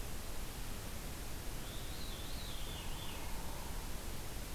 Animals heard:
Veery (Catharus fuscescens), Downy Woodpecker (Dryobates pubescens)

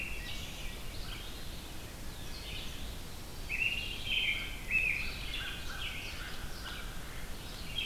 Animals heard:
American Crow (Corvus brachyrhynchos), Red-eyed Vireo (Vireo olivaceus), Mallard (Anas platyrhynchos), American Robin (Turdus migratorius)

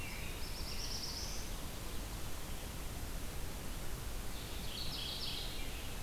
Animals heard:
Mourning Warbler (Geothlypis philadelphia), American Robin (Turdus migratorius), Black-throated Blue Warbler (Setophaga caerulescens)

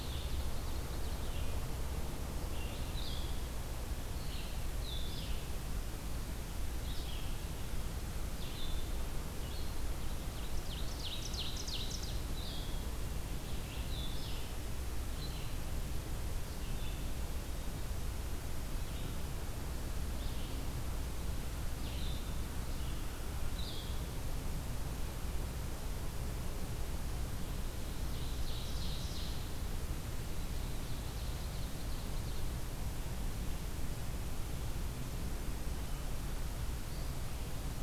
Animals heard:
Blue-headed Vireo (Vireo solitarius), Ovenbird (Seiurus aurocapilla)

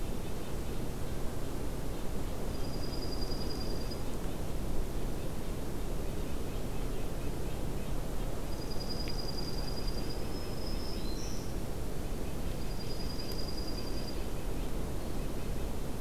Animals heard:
Black-throated Green Warbler (Setophaga virens), Red-breasted Nuthatch (Sitta canadensis), Dark-eyed Junco (Junco hyemalis)

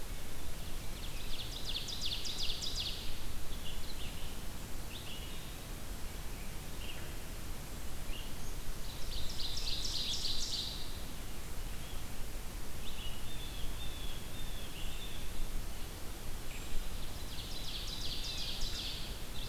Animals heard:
Ovenbird (Seiurus aurocapilla), Red-eyed Vireo (Vireo olivaceus), Blue Jay (Cyanocitta cristata), Brown Creeper (Certhia americana)

